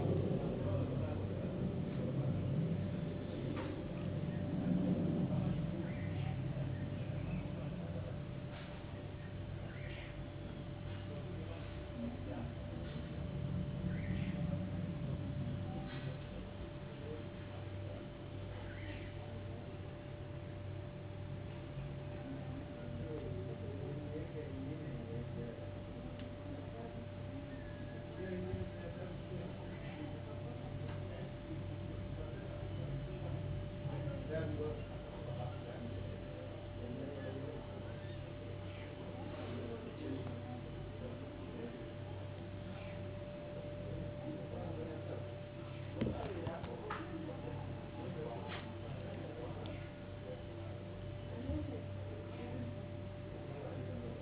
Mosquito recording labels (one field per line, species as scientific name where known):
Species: no mosquito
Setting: insect culture